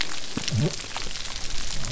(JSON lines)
{"label": "biophony", "recorder": "SoundTrap 300"}